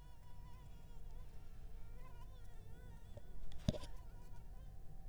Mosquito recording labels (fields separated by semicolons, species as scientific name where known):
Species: Anopheles arabiensis; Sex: female; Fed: unfed; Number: one; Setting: cup